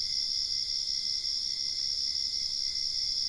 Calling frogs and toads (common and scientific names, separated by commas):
none